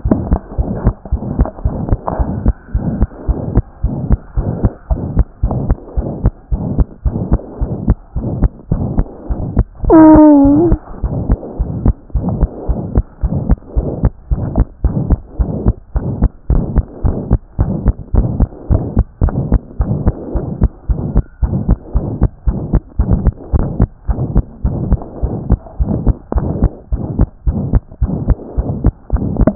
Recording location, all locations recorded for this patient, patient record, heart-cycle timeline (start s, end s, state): pulmonary valve (PV)
aortic valve (AV)+pulmonary valve (PV)+tricuspid valve (TV)+mitral valve (MV)
#Age: Child
#Sex: Male
#Height: 92.0 cm
#Weight: 10.9 kg
#Pregnancy status: False
#Murmur: Present
#Murmur locations: aortic valve (AV)+mitral valve (MV)+pulmonary valve (PV)+tricuspid valve (TV)
#Most audible location: tricuspid valve (TV)
#Systolic murmur timing: Holosystolic
#Systolic murmur shape: Diamond
#Systolic murmur grading: III/VI or higher
#Systolic murmur pitch: High
#Systolic murmur quality: Harsh
#Diastolic murmur timing: nan
#Diastolic murmur shape: nan
#Diastolic murmur grading: nan
#Diastolic murmur pitch: nan
#Diastolic murmur quality: nan
#Outcome: Abnormal
#Campaign: 2014 screening campaign
0.00	11.04	unannotated
11.04	11.14	S1
11.14	11.28	systole
11.28	11.38	S2
11.38	11.60	diastole
11.60	11.70	S1
11.70	11.84	systole
11.84	11.94	S2
11.94	12.16	diastole
12.16	12.28	S1
12.28	12.40	systole
12.40	12.48	S2
12.48	12.68	diastole
12.68	12.80	S1
12.80	12.94	systole
12.94	13.04	S2
13.04	13.24	diastole
13.24	13.38	S1
13.38	13.48	systole
13.48	13.58	S2
13.58	13.76	diastole
13.76	13.88	S1
13.88	14.02	systole
14.02	14.12	S2
14.12	14.32	diastole
14.32	14.42	S1
14.42	14.56	systole
14.56	14.66	S2
14.66	14.84	diastole
14.84	14.96	S1
14.96	15.08	systole
15.08	15.18	S2
15.18	15.40	diastole
15.40	15.50	S1
15.50	15.64	systole
15.64	15.74	S2
15.74	15.96	diastole
15.96	16.06	S1
16.06	16.20	systole
16.20	16.30	S2
16.30	16.50	diastole
16.50	16.64	S1
16.64	16.76	systole
16.76	16.84	S2
16.84	17.04	diastole
17.04	17.16	S1
17.16	17.30	systole
17.30	17.40	S2
17.40	17.60	diastole
17.60	17.72	S1
17.72	17.84	systole
17.84	17.94	S2
17.94	18.14	diastole
18.14	18.28	S1
18.28	18.38	systole
18.38	18.48	S2
18.48	18.70	diastole
18.70	18.82	S1
18.82	18.96	systole
18.96	19.04	S2
19.04	19.22	diastole
19.22	19.34	S1
19.34	19.50	systole
19.50	19.60	S2
19.60	19.80	diastole
19.80	19.94	S1
19.94	20.04	systole
20.04	20.14	S2
20.14	20.34	diastole
20.34	20.44	S1
20.44	20.60	systole
20.60	20.70	S2
20.70	20.90	diastole
20.90	21.00	S1
21.00	21.14	systole
21.14	21.24	S2
21.24	21.44	diastole
21.44	21.56	S1
21.56	21.68	systole
21.68	21.78	S2
21.78	21.96	diastole
21.96	22.06	S1
22.06	22.20	systole
22.20	22.30	S2
22.30	22.48	diastole
22.48	22.58	S1
22.58	22.72	systole
22.72	22.82	S2
22.82	23.00	diastole
23.00	23.10	S1
23.10	23.24	systole
23.24	23.32	S2
23.32	23.54	diastole
23.54	23.66	S1
23.66	23.78	systole
23.78	23.90	S2
23.90	24.10	diastole
24.10	24.20	S1
24.20	24.34	systole
24.34	24.44	S2
24.44	24.64	diastole
24.64	24.76	S1
24.76	24.90	systole
24.90	25.00	S2
25.00	25.22	diastole
25.22	25.34	S1
25.34	25.50	systole
25.50	25.60	S2
25.60	25.80	diastole
25.80	25.92	S1
25.92	26.06	systole
26.06	26.14	S2
26.14	26.36	diastole
26.36	26.48	S1
26.48	26.60	systole
26.60	26.70	S2
26.70	26.92	diastole
26.92	27.02	S1
27.02	27.18	systole
27.18	27.28	S2
27.28	27.48	diastole
27.48	27.60	S1
27.60	27.72	systole
27.72	27.82	S2
27.82	28.02	diastole
28.02	28.14	S1
28.14	28.28	systole
28.28	28.36	S2
28.36	28.58	diastole
28.58	28.68	S1
28.68	28.84	systole
28.84	28.92	S2
28.92	29.11	diastole
29.11	29.55	unannotated